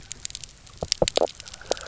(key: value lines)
label: biophony, knock croak
recorder: SoundTrap 300